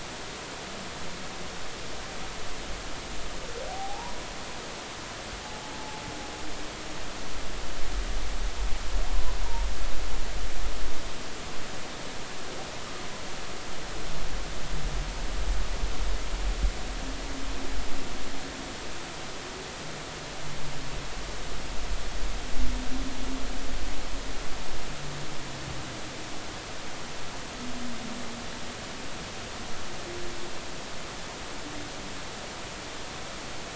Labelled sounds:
3.7	4.2	humpback whale, 0.80 to 1.0 kHz
5.4	5.7	humpback whale, 0.80 to 0.90 kHz

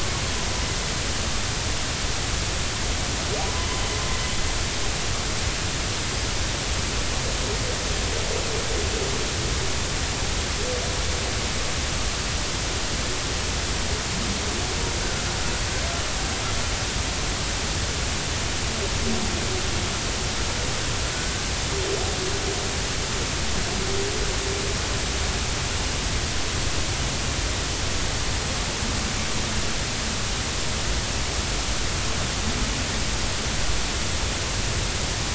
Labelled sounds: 3.4	3.7	humpback whale, 0.93 to 1.1 kHz

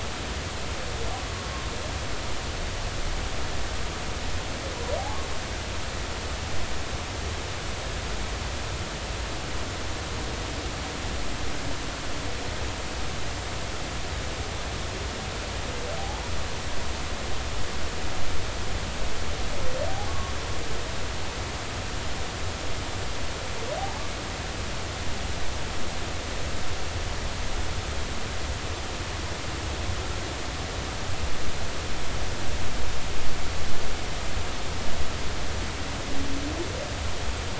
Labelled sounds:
16.0	16.2	humpback whale, 0.80 to 0.96 kHz
20.1	20.3	humpback whale, 1.0 to 1.2 kHz

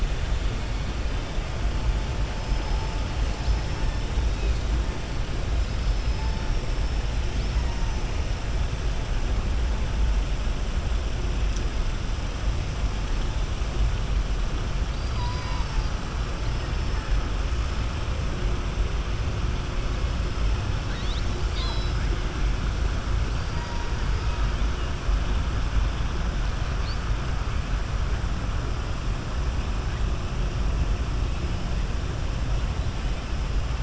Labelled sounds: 14.8	15.9	killer whale, southern resident, 0.92 to 5.8 kHz
20.8	22.0	killer whale, southern resident, 0.95 to 7.3 kHz

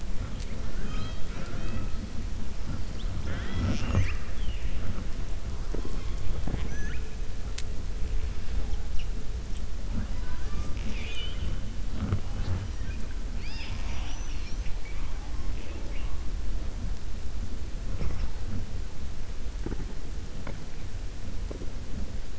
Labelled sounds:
10.1	11.5	killer whale, 1.0 to 7.7 kHz

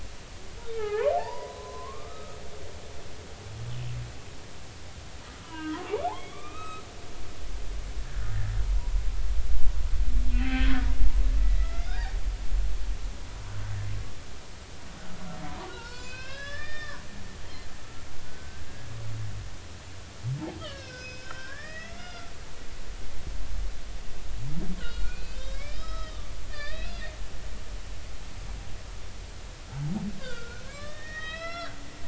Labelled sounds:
0.7	2.4	humpback whale, 0.80 to 4.9 kHz
5.4	5.8	humpback whale, 0.90 to 3.1 kHz
6.1	6.8	humpback whale, 1.1 to 3.9 kHz
8.1	8.4	humpback whale, 1.4 to 1.8 kHz
10.3	12.2	humpback whale, 0.80 to 3.8 kHz
15.5	17.0	humpback whale, 0.90 to 5.5 kHz
17.8	18.9	humpback whale, 1.2 to 1.7 kHz
20.6	22.3	humpback whale, 1.0 to 6.1 kHz
24.8	26.9	humpback whale, 1.2 to 5.2 kHz
29.7	31.7	humpback whale, 0.80 to 5.6 kHz

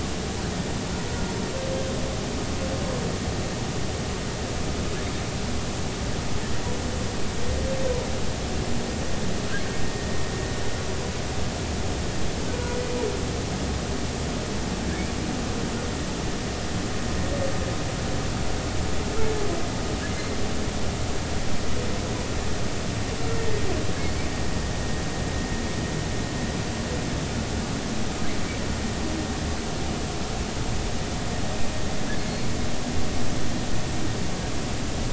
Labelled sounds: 1.1	1.3	humpback whale, 1.4 to 1.5 kHz
12.5	12.8	humpback whale, 1.4 to 1.6 kHz

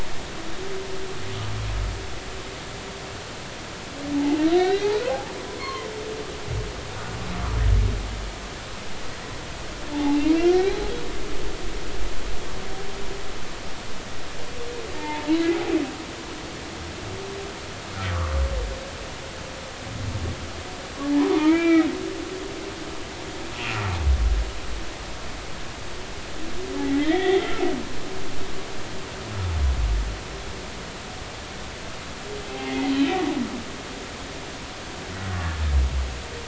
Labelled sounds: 4.1	5.9	humpback whale, 0.80 to 4.3 kHz
9.9	10.9	humpback whale, 0.80 to 2.1 kHz
15.0	15.7	humpback whale, 0.80 to 0.96 kHz
21.0	21.9	humpback whale, 0.83 to 2.4 kHz
26.8	27.6	humpback whale, 0.80 to 3.8 kHz
32.5	32.9	humpback whale, 0.80 to 2.2 kHz

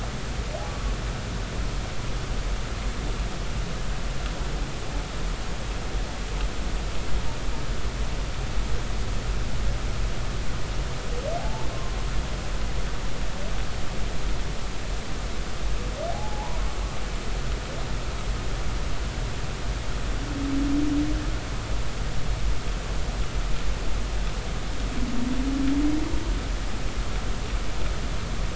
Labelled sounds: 11.4	11.7	humpback whale, 0.80 to 0.99 kHz
16.1	16.6	humpback whale, 0.80 to 1.1 kHz

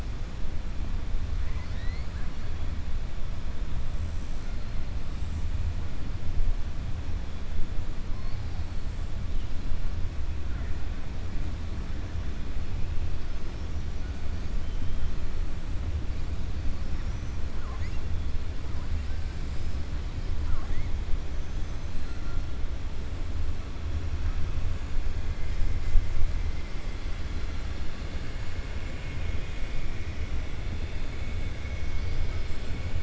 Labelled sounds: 1.3	2.3	killer whale, 0.99 to 4.8 kHz
20.4	20.9	killer whale, 0.73 to 2.2 kHz
21.3	22.2	killer whale, 5.9 to 8.0 kHz

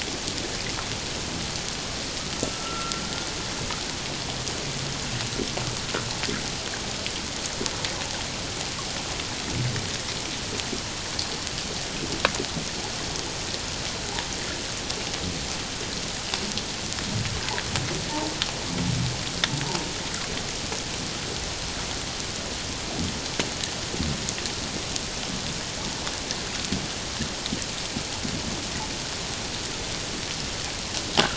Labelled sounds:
2.5	3.0	humpback whale, 1.2 to 1.4 kHz
18.1	18.3	humpback whale, 0.81 to 1.2 kHz

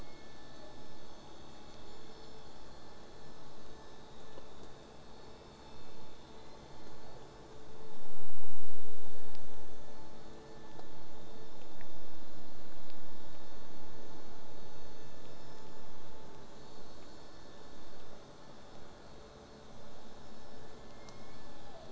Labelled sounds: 6.4	7.3	killer whale, southern resident, J pod, 0.39 to 4.3 kHz
20.8	21.9	killer whale, southern resident, J pod, call S01, 0.40 to 2.3 kHz

